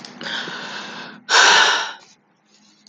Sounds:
Sigh